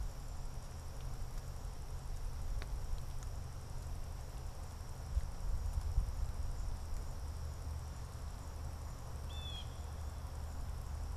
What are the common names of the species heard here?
Blue Jay